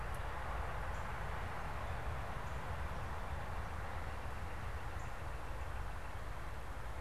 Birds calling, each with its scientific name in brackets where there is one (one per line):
Northern Flicker (Colaptes auratus)
Northern Cardinal (Cardinalis cardinalis)